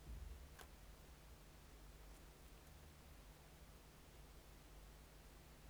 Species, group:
Chorthippus acroleucus, Orthoptera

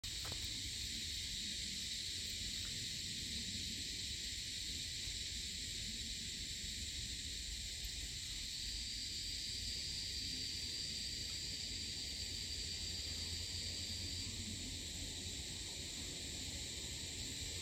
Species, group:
Tamasa tristigma, Cicadidae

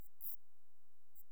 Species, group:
Antaxius kraussii, Orthoptera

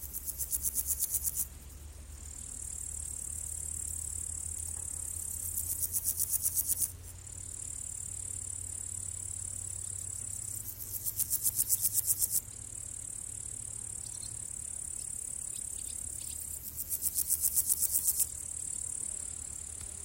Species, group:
Pseudochorthippus parallelus, Orthoptera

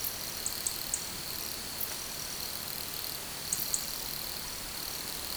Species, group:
Nemobius sylvestris, Orthoptera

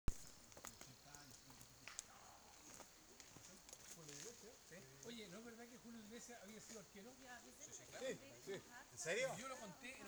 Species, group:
Nemobius sylvestris, Orthoptera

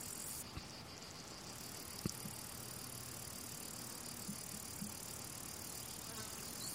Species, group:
Tettigettalna josei, Cicadidae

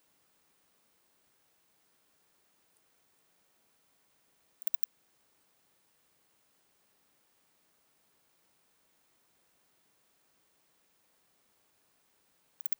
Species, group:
Poecilimon deplanatus, Orthoptera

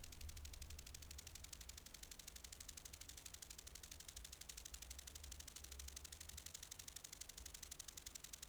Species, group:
Chorthippus acroleucus, Orthoptera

